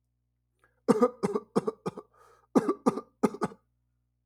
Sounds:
Cough